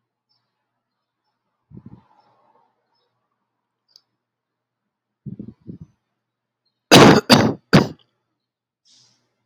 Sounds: Cough